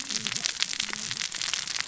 {"label": "biophony, cascading saw", "recorder": "SoundTrap 600 or HydroMoth"}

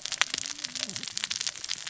{"label": "biophony, cascading saw", "recorder": "SoundTrap 600 or HydroMoth"}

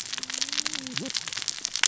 {"label": "biophony, cascading saw", "recorder": "SoundTrap 600 or HydroMoth"}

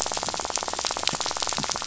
{"label": "biophony, rattle", "recorder": "SoundTrap 500"}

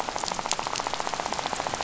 {"label": "biophony, rattle", "recorder": "SoundTrap 500"}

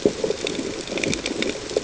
{"label": "ambient", "recorder": "HydroMoth"}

